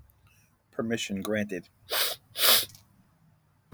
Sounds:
Sniff